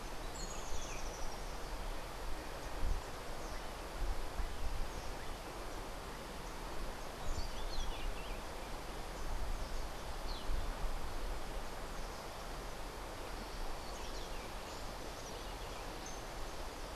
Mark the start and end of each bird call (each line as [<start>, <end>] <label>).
[0.00, 1.40] Rufous-tailed Hummingbird (Amazilia tzacatl)